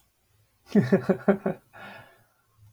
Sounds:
Laughter